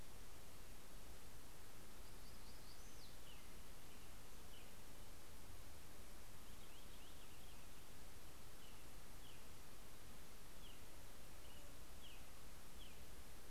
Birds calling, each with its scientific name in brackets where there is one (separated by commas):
Black-throated Gray Warbler (Setophaga nigrescens), American Robin (Turdus migratorius), Purple Finch (Haemorhous purpureus)